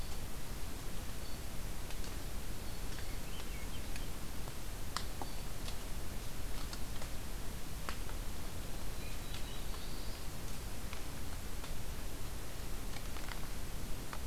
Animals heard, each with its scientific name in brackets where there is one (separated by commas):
Black-throated Blue Warbler (Setophaga caerulescens), Swainson's Thrush (Catharus ustulatus)